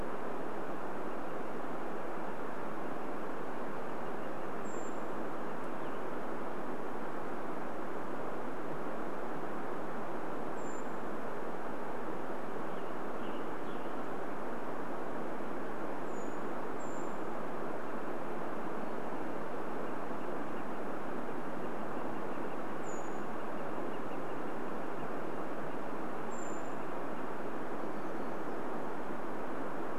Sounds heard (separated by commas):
Western Tanager song, Brown Creeper call, Northern Flicker call